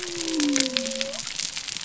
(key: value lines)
label: biophony
recorder: SoundTrap 300